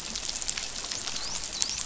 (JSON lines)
{"label": "biophony, dolphin", "recorder": "SoundTrap 500"}